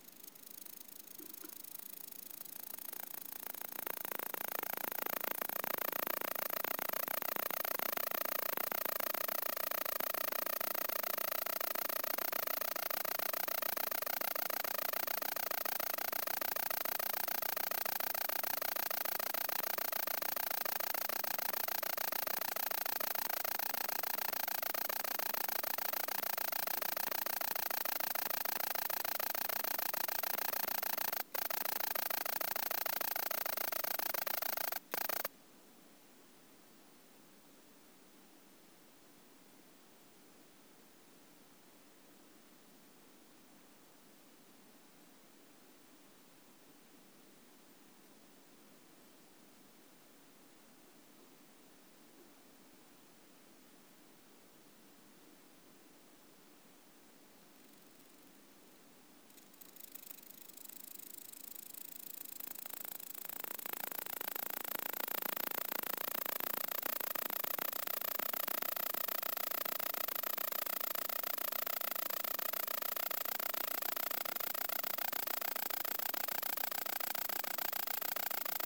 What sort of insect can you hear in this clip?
orthopteran